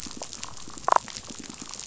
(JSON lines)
{"label": "biophony, damselfish", "recorder": "SoundTrap 500"}